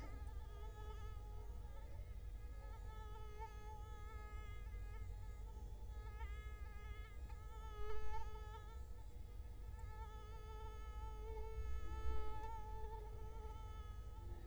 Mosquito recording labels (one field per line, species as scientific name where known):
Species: Culex quinquefasciatus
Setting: cup